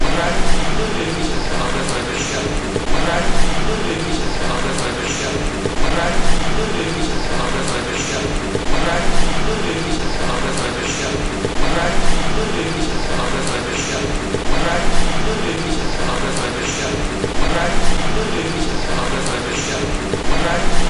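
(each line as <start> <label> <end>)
0.0 Distorted voices of people talking repeatedly in the open. 20.9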